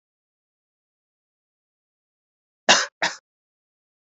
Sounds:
Cough